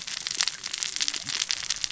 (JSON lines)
{"label": "biophony, cascading saw", "recorder": "SoundTrap 600 or HydroMoth"}